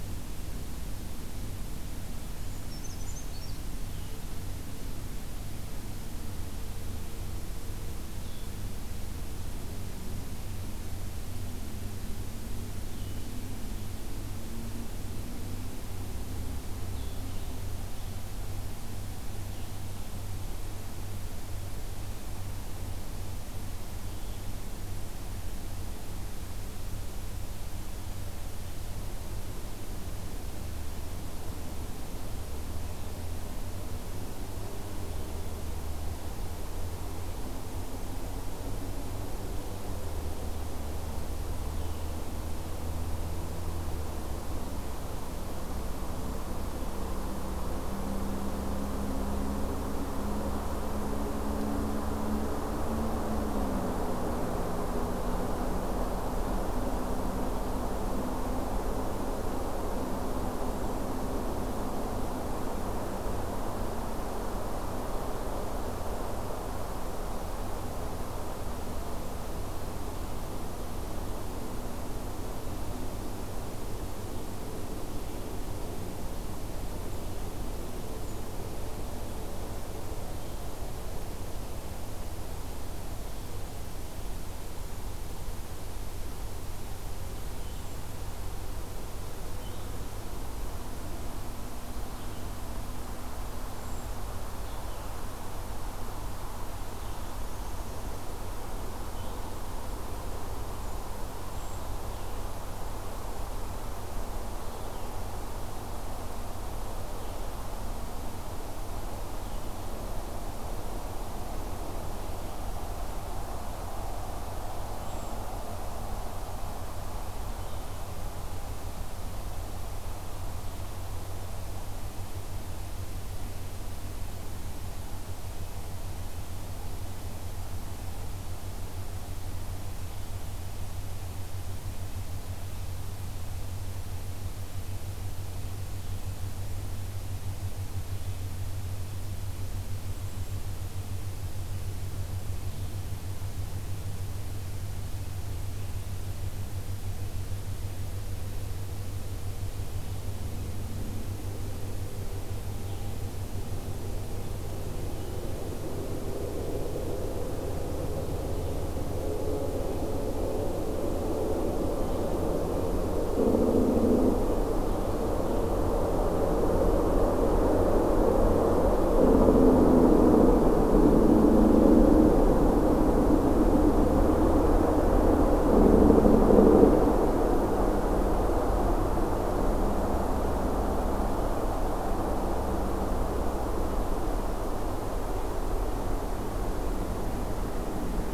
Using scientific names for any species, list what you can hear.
Certhia americana, Vireo solitarius